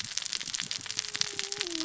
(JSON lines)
{"label": "biophony, cascading saw", "recorder": "SoundTrap 600 or HydroMoth"}